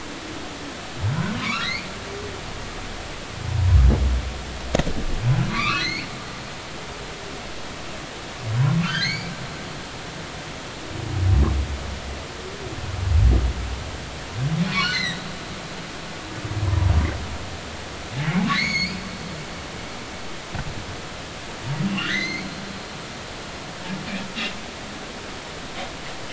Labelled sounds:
1.4	1.9	humpback whale, 0.96 to 4.8 kHz
5.5	6.1	humpback whale, 1.1 to 4.8 kHz
8.8	9.3	humpback whale, 1.2 to 6.5 kHz
14.7	15.3	humpback whale, 1.4 to 4.5 kHz
16.6	16.9	humpback whale, 0.93 to 1.1 kHz
18.5	19.0	humpback whale, 1.7 to 6.8 kHz
21.9	22.6	humpback whale, 1.2 to 4.3 kHz
23.0	23.4	humpback whale, 6.1 to 6.4 kHz

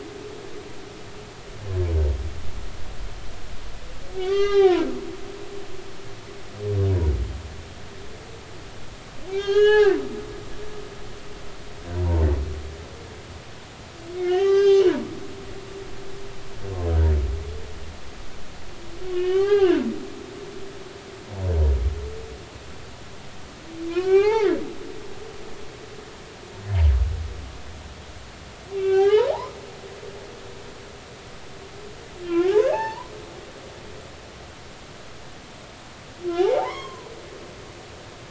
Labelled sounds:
4.2	4.9	humpback whale, 0.80 to 5.7 kHz
9.2	10.0	humpback whale, 0.80 to 6.8 kHz
11.9	12.3	humpback whale, 0.86 to 1.1 kHz
14.2	14.8	humpback whale, 0.80 to 6.5 kHz
19.1	19.9	humpback whale, 0.80 to 3.4 kHz
23.9	24.5	humpback whale, 0.80 to 2.9 kHz
28.7	29.3	humpback whale, 0.80 to 3.3 kHz
32.3	33.1	humpback whale, 0.80 to 4.5 kHz
36.4	37.1	humpback whale, 0.80 to 6.6 kHz

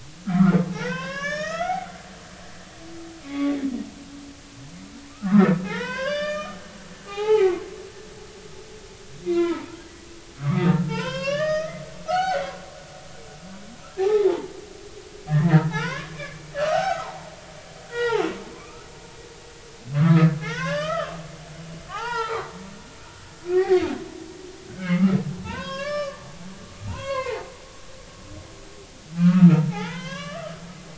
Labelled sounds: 0.3	1.9	humpback whale, 0.80 to 6.8 kHz
3.2	3.6	humpback whale, 0.80 to 1.2 kHz
4.2	6.6	humpback whale, 0.80 to 5.4 kHz
7.1	7.6	humpback whale, 0.80 to 3.9 kHz
9.2	9.7	humpback whale, 0.86 to 3.8 kHz
10.4	12.4	humpback whale, 0.80 to 6.2 kHz
13.9	14.3	humpback whale, 0.80 to 1.9 kHz
15.3	17.3	humpback whale, 0.80 to 2.5 kHz
17.9	18.9	humpback whale, 0.80 to 3.4 kHz
19.9	21.2	humpback whale, 0.80 to 5.4 kHz
21.9	22.5	humpback whale, 0.80 to 5.3 kHz
23.5	23.8	humpback whale, 1.8 to 2.0 kHz
24.7	25.2	humpback whale, 1.1 to 2.3 kHz
25.4	26.2	humpback whale, 0.83 to 5.3 kHz
26.9	27.5	humpback whale, 0.80 to 4.5 kHz
29.2	30.6	humpback whale, 0.80 to 3.6 kHz

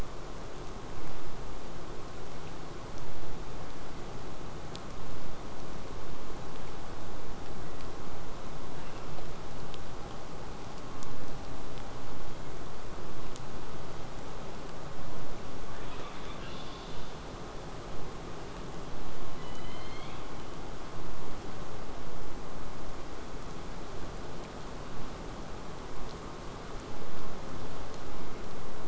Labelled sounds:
0.9	5.9	vessel noise, 0 to 8.0 kHz
8.7	9.1	killer whale, southern resident, 1.3 to 3.0 kHz
15.9	17.2	killer whale, southern resident, 0.85 to 5.2 kHz
19.3	20.6	killer whale, southern resident, J pod, call S01, 1.8 to 6.7 kHz

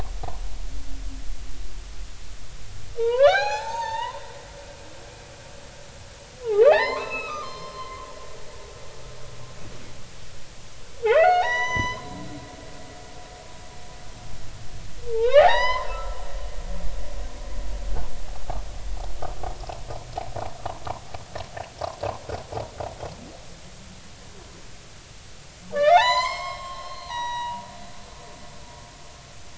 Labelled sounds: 3.0	4.2	humpback whale, 0.80 to 6.9 kHz
6.4	8.1	humpback whale, 0.80 to 5.3 kHz
11.0	12.1	humpback whale, 0.80 to 7.0 kHz
15.1	16.2	humpback whale, 0.80 to 6.2 kHz
25.7	27.6	humpback whale, 0.80 to 8.0 kHz

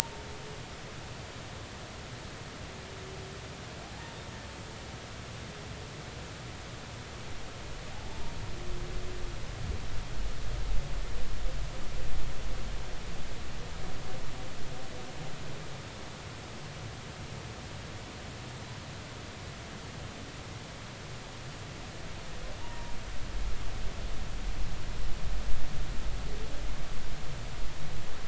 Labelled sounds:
7.9	8.3	humpback whale, 0.80 to 0.99 kHz
22.6	23.0	humpback whale, 0.86 to 0.99 kHz

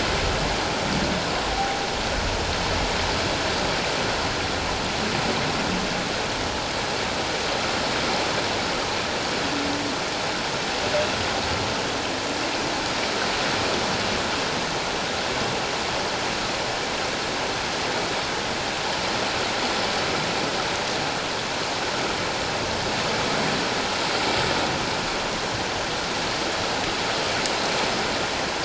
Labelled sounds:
1.5	1.8	humpback whale, 0.78 to 0.84 kHz

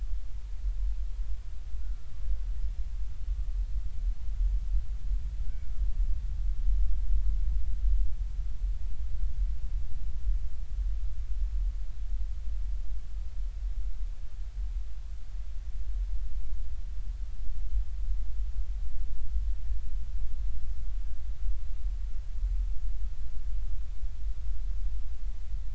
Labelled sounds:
1.8	2.0	killer whale, Bigg's (transient), 1.3 to 1.5 kHz

